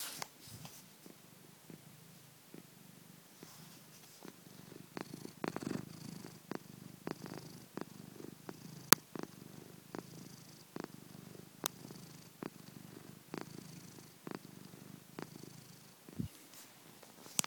Are they doing karate?
no